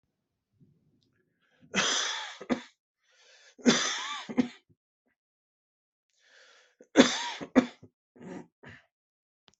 {"expert_labels": [{"quality": "good", "cough_type": "dry", "dyspnea": false, "wheezing": false, "stridor": false, "choking": false, "congestion": false, "nothing": true, "diagnosis": "upper respiratory tract infection", "severity": "mild"}], "age": 48, "gender": "male", "respiratory_condition": false, "fever_muscle_pain": false, "status": "symptomatic"}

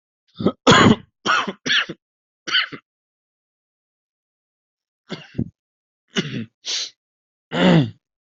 {"expert_labels": [{"quality": "good", "cough_type": "dry", "dyspnea": false, "wheezing": true, "stridor": false, "choking": false, "congestion": true, "nothing": false, "diagnosis": "obstructive lung disease", "severity": "mild"}], "age": 36, "gender": "male", "respiratory_condition": false, "fever_muscle_pain": false, "status": "COVID-19"}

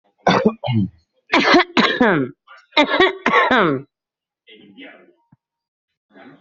{"expert_labels": [{"quality": "poor", "cough_type": "unknown", "dyspnea": false, "wheezing": false, "stridor": false, "choking": false, "congestion": false, "nothing": true, "diagnosis": "healthy cough", "severity": "pseudocough/healthy cough"}], "age": 44, "gender": "female", "respiratory_condition": false, "fever_muscle_pain": false, "status": "COVID-19"}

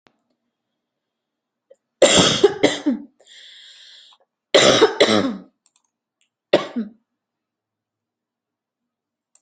{"expert_labels": [{"quality": "good", "cough_type": "wet", "dyspnea": false, "wheezing": false, "stridor": false, "choking": false, "congestion": false, "nothing": true, "diagnosis": "lower respiratory tract infection", "severity": "mild"}], "age": 30, "gender": "female", "respiratory_condition": false, "fever_muscle_pain": true, "status": "symptomatic"}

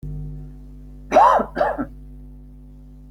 {"expert_labels": [{"quality": "ok", "cough_type": "unknown", "dyspnea": false, "wheezing": false, "stridor": false, "choking": false, "congestion": false, "nothing": true, "diagnosis": "healthy cough", "severity": "pseudocough/healthy cough"}], "age": 31, "gender": "male", "respiratory_condition": true, "fever_muscle_pain": false, "status": "healthy"}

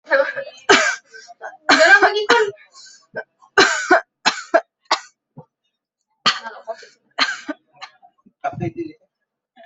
{"expert_labels": [{"quality": "good", "cough_type": "dry", "dyspnea": false, "wheezing": false, "stridor": false, "choking": false, "congestion": false, "nothing": true, "diagnosis": "upper respiratory tract infection", "severity": "mild"}], "age": 22, "gender": "female", "respiratory_condition": false, "fever_muscle_pain": false, "status": "healthy"}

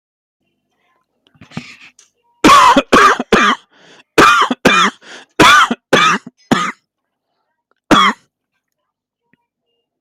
{"expert_labels": [{"quality": "good", "cough_type": "dry", "dyspnea": false, "wheezing": true, "stridor": false, "choking": false, "congestion": false, "nothing": false, "diagnosis": "obstructive lung disease", "severity": "severe"}], "age": 42, "gender": "male", "respiratory_condition": true, "fever_muscle_pain": false, "status": "symptomatic"}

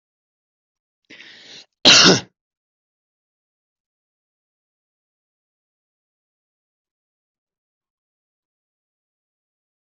{"expert_labels": [{"quality": "ok", "cough_type": "dry", "dyspnea": false, "wheezing": false, "stridor": false, "choking": false, "congestion": false, "nothing": true, "diagnosis": "healthy cough", "severity": "pseudocough/healthy cough"}]}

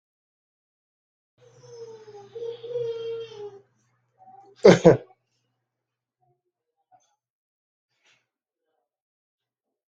{"expert_labels": [{"quality": "poor", "cough_type": "dry", "dyspnea": false, "wheezing": false, "stridor": false, "choking": false, "congestion": false, "nothing": true, "diagnosis": "healthy cough", "severity": "pseudocough/healthy cough"}]}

